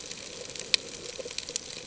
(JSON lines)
{"label": "ambient", "recorder": "HydroMoth"}